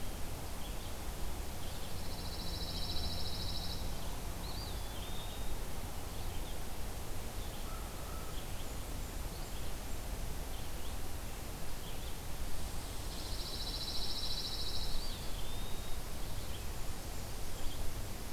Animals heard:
Red-eyed Vireo (Vireo olivaceus), Pine Warbler (Setophaga pinus), Eastern Wood-Pewee (Contopus virens), Blackburnian Warbler (Setophaga fusca)

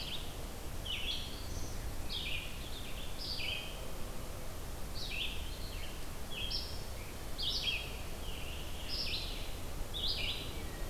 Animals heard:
Red-eyed Vireo (Vireo olivaceus), Scarlet Tanager (Piranga olivacea), Black-throated Green Warbler (Setophaga virens)

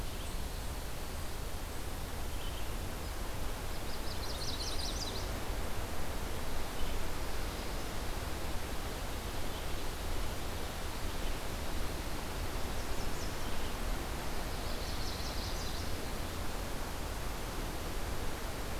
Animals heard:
Chestnut-sided Warbler (Setophaga pensylvanica), Eastern Wood-Pewee (Contopus virens)

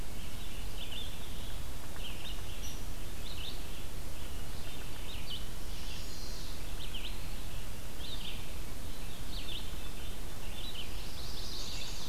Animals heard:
Red-eyed Vireo (Vireo olivaceus), Hairy Woodpecker (Dryobates villosus), Chestnut-sided Warbler (Setophaga pensylvanica)

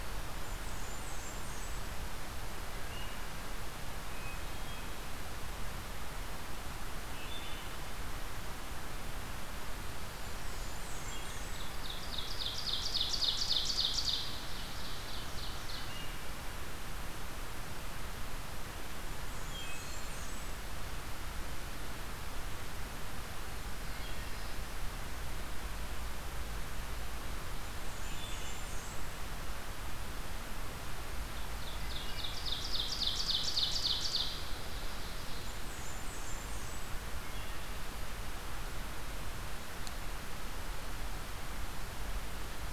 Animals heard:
Black-throated Blue Warbler (Setophaga caerulescens), Wood Thrush (Hylocichla mustelina), Hermit Thrush (Catharus guttatus), Ovenbird (Seiurus aurocapilla), Blackburnian Warbler (Setophaga fusca)

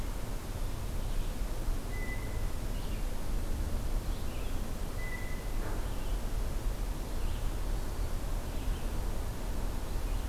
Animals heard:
Red-eyed Vireo (Vireo olivaceus), Blue Jay (Cyanocitta cristata)

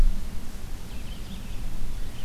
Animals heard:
Red-eyed Vireo (Vireo olivaceus)

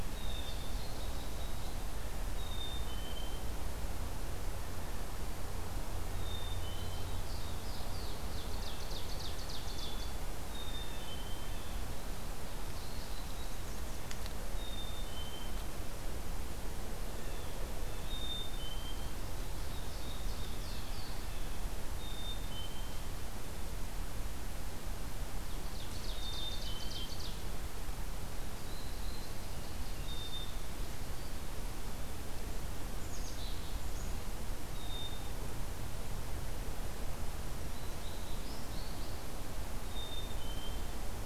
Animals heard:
American Goldfinch (Spinus tristis), Ovenbird (Seiurus aurocapilla), Blue Jay (Cyanocitta cristata), Black-capped Chickadee (Poecile atricapillus), Black-and-white Warbler (Mniotilta varia)

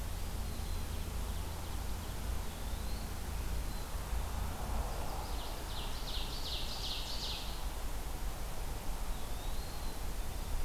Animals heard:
Ovenbird (Seiurus aurocapilla), Black-capped Chickadee (Poecile atricapillus), Eastern Wood-Pewee (Contopus virens)

